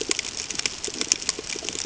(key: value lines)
label: ambient
recorder: HydroMoth